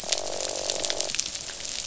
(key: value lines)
label: biophony, croak
recorder: SoundTrap 500